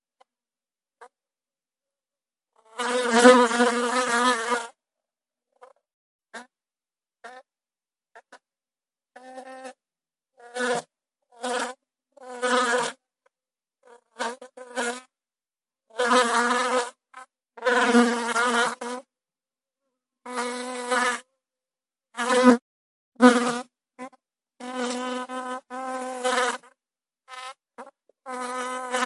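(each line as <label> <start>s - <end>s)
A very short buzzing sound of a bee. 0.9s - 1.2s
A swarm of bees buzzing. 2.7s - 4.8s
A few short buzzing sounds of a bee flying. 5.6s - 9.8s
Bees buzzing with pauses. 10.6s - 13.0s
The buzzing sound of bees flying in a swarm. 14.1s - 15.0s
The buzzing sound of bees flying in a swarm. 15.9s - 19.2s
The buzzing sound of bees flying in a swarm. 20.2s - 21.2s
A buzzing sound of bees flying in a swarm. 22.1s - 29.1s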